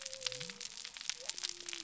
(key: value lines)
label: biophony
recorder: SoundTrap 300